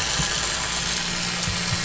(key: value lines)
label: anthrophony, boat engine
recorder: SoundTrap 500